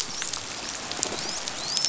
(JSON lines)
{"label": "biophony, dolphin", "recorder": "SoundTrap 500"}